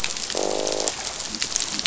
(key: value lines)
label: biophony, croak
recorder: SoundTrap 500